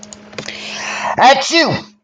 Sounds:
Sneeze